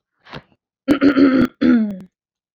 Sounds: Throat clearing